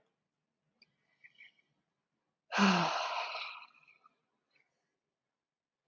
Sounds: Sigh